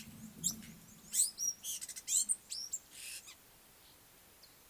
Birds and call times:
African Gray Flycatcher (Bradornis microrhynchus): 0:01.5

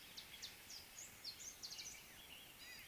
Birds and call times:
Gray-backed Camaroptera (Camaroptera brevicaudata): 0:02.7

